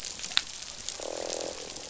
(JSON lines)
{"label": "biophony, croak", "recorder": "SoundTrap 500"}